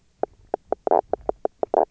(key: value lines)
label: biophony, knock croak
recorder: SoundTrap 300